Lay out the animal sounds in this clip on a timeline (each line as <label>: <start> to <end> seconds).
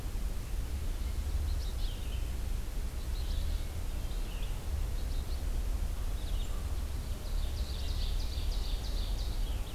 Red-eyed Vireo (Vireo olivaceus): 0.0 to 9.7 seconds
Ovenbird (Seiurus aurocapilla): 7.1 to 9.4 seconds